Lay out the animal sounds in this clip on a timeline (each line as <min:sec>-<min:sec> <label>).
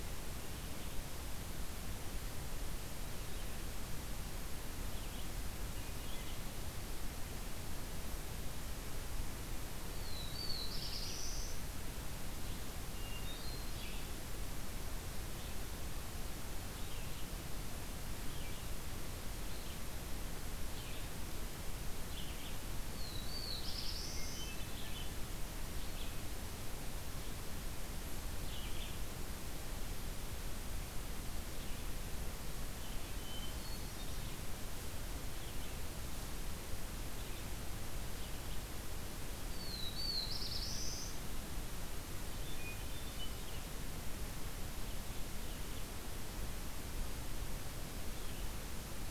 0:00.1-0:38.9 Red-eyed Vireo (Vireo olivaceus)
0:09.8-0:11.9 Black-throated Blue Warbler (Setophaga caerulescens)
0:12.7-0:14.0 Hermit Thrush (Catharus guttatus)
0:22.8-0:24.6 Black-throated Blue Warbler (Setophaga caerulescens)
0:23.8-0:25.0 Hermit Thrush (Catharus guttatus)
0:32.9-0:34.4 Hermit Thrush (Catharus guttatus)
0:39.3-0:41.3 Black-throated Blue Warbler (Setophaga caerulescens)
0:42.2-0:43.9 Hermit Thrush (Catharus guttatus)